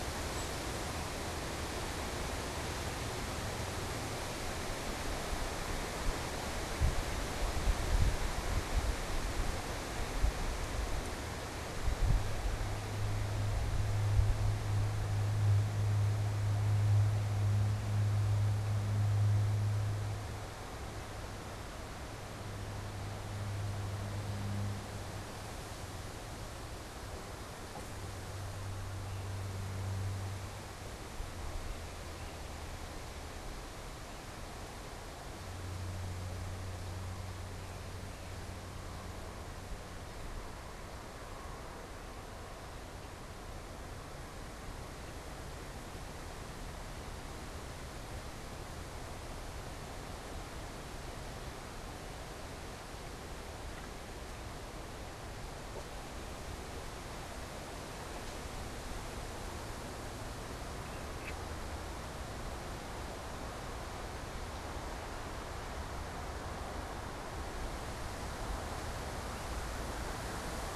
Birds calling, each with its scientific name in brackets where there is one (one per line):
unidentified bird